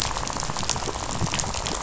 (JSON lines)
{"label": "biophony, rattle", "recorder": "SoundTrap 500"}